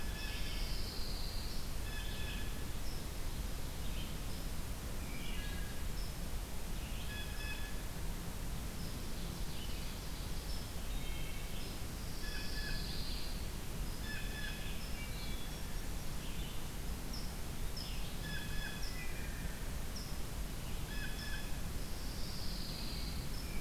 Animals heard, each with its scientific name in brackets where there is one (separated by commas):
Red-eyed Vireo (Vireo olivaceus), Ovenbird (Seiurus aurocapilla), Pine Warbler (Setophaga pinus), Wood Thrush (Hylocichla mustelina), Blue Jay (Cyanocitta cristata), unknown mammal, Hermit Thrush (Catharus guttatus)